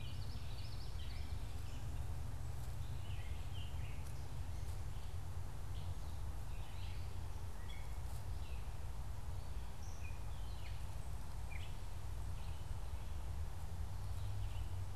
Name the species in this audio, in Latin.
Geothlypis trichas, Dumetella carolinensis